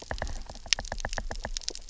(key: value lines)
label: biophony, knock
recorder: SoundTrap 300